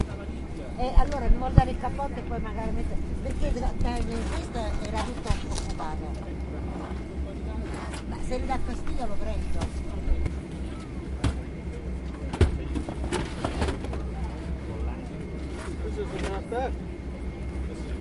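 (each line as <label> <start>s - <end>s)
Multiple voices speaking softly in Italian with slight ambient noise. 0.0s - 18.0s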